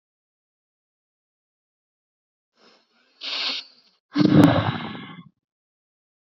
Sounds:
Sigh